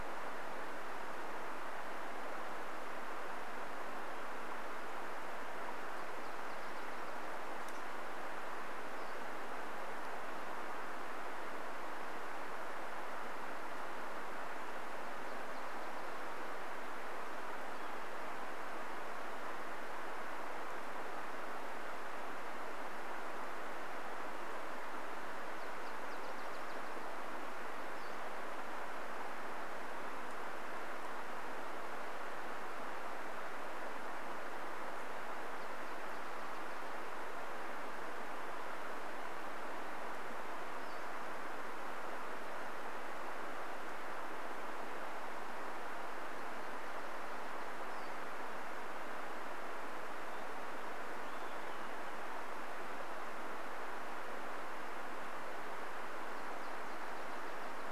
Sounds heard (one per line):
Olive-sided Flycatcher song
Nashville Warbler song
Pacific-slope Flycatcher call